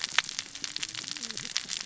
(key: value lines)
label: biophony, cascading saw
recorder: SoundTrap 600 or HydroMoth